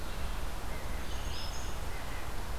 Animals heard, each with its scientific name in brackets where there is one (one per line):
Red-eyed Vireo (Vireo olivaceus)
Black-throated Green Warbler (Setophaga virens)
Red-breasted Nuthatch (Sitta canadensis)